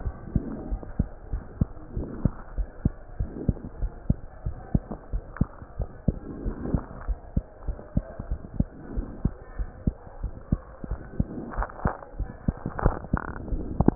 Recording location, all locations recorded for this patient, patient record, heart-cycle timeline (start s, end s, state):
pulmonary valve (PV)
aortic valve (AV)+pulmonary valve (PV)+tricuspid valve (TV)+mitral valve (MV)
#Age: Child
#Sex: Male
#Height: 105.0 cm
#Weight: 16.4 kg
#Pregnancy status: False
#Murmur: Absent
#Murmur locations: nan
#Most audible location: nan
#Systolic murmur timing: nan
#Systolic murmur shape: nan
#Systolic murmur grading: nan
#Systolic murmur pitch: nan
#Systolic murmur quality: nan
#Diastolic murmur timing: nan
#Diastolic murmur shape: nan
#Diastolic murmur grading: nan
#Diastolic murmur pitch: nan
#Diastolic murmur quality: nan
#Outcome: Normal
#Campaign: 2015 screening campaign
0.00	0.14	S1
0.14	0.28	systole
0.28	0.44	S2
0.44	0.68	diastole
0.68	0.80	S1
0.80	0.96	systole
0.96	1.10	S2
1.10	1.30	diastole
1.30	1.44	S1
1.44	1.58	systole
1.58	1.70	S2
1.70	1.94	diastole
1.94	2.08	S1
2.08	2.22	systole
2.22	2.34	S2
2.34	2.56	diastole
2.56	2.68	S1
2.68	2.82	systole
2.82	2.94	S2
2.94	3.18	diastole
3.18	3.32	S1
3.32	3.46	systole
3.46	3.56	S2
3.56	3.80	diastole
3.80	3.92	S1
3.92	4.06	systole
4.06	4.20	S2
4.20	4.46	diastole
4.46	4.58	S1
4.58	4.70	systole
4.70	4.82	S2
4.82	5.12	diastole
5.12	5.22	S1
5.22	5.36	systole
5.36	5.50	S2
5.50	5.78	diastole
5.78	5.88	S1
5.88	6.04	systole
6.04	6.16	S2
6.16	6.40	diastole
6.40	6.54	S1
6.54	6.68	systole
6.68	6.82	S2
6.82	7.04	diastole
7.04	7.18	S1
7.18	7.32	systole
7.32	7.44	S2
7.44	7.66	diastole
7.66	7.78	S1
7.78	7.96	systole
7.96	8.04	S2
8.04	8.28	diastole
8.28	8.40	S1
8.40	8.56	systole
8.56	8.68	S2
8.68	8.92	diastole
8.92	9.06	S1
9.06	9.20	systole
9.20	9.34	S2
9.34	9.58	diastole
9.58	9.70	S1
9.70	9.84	systole
9.84	9.96	S2
9.96	10.20	diastole
10.20	10.32	S1
10.32	10.48	systole
10.48	10.60	S2
10.60	10.88	diastole
10.88	11.00	S1
11.00	11.18	systole
11.18	11.28	S2
11.28	11.54	diastole
11.54	11.68	S1
11.68	11.82	systole
11.82	11.94	S2
11.94	12.18	diastole
12.18	12.30	S1
12.30	12.44	systole
12.44	12.58	S2
12.58	12.77	diastole